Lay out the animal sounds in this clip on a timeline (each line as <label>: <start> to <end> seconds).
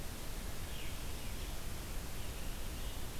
Veery (Catharus fuscescens): 0.6 to 1.0 seconds